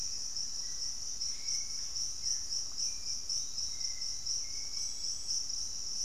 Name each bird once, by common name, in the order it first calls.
unidentified bird, Hauxwell's Thrush, Piratic Flycatcher